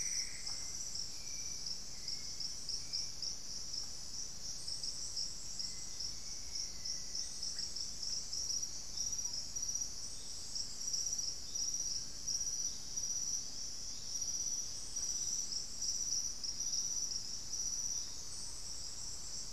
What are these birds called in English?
Plumbeous Antbird, Hauxwell's Thrush, Black-faced Antthrush